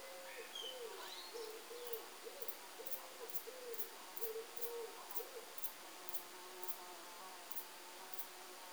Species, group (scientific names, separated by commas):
Antaxius spinibrachius, Orthoptera